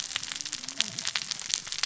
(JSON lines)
{"label": "biophony, cascading saw", "recorder": "SoundTrap 600 or HydroMoth"}